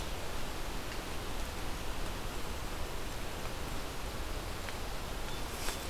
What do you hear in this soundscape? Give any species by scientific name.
forest ambience